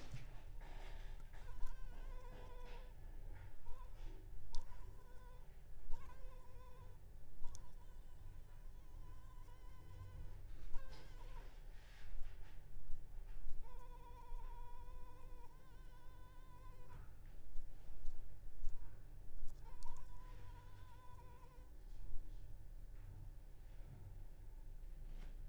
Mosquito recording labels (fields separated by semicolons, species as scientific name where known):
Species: Anopheles arabiensis; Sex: female; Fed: unfed; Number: one; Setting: cup